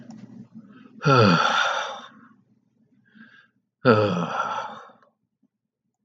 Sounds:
Sigh